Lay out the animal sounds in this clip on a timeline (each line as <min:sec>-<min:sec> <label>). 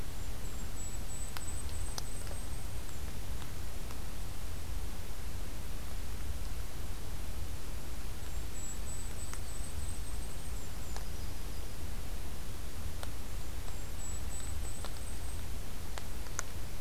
0:00.0-0:03.1 Golden-crowned Kinglet (Regulus satrapa)
0:08.1-0:11.1 Golden-crowned Kinglet (Regulus satrapa)
0:08.8-0:10.2 Yellow-rumped Warbler (Setophaga coronata)
0:10.6-0:11.9 Yellow-rumped Warbler (Setophaga coronata)
0:13.3-0:15.6 Golden-crowned Kinglet (Regulus satrapa)